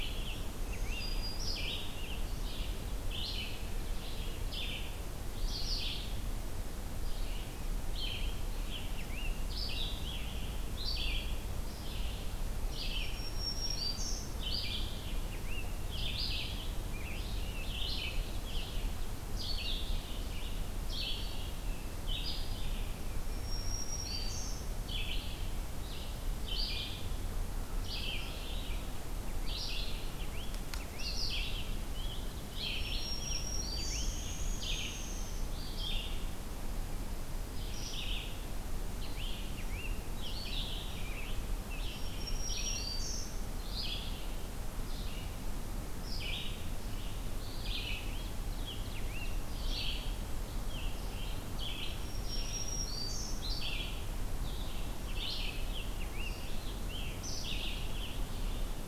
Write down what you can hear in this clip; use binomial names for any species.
Pheucticus ludovicianus, Vireo olivaceus, Setophaga virens, Dryobates pubescens, Seiurus aurocapilla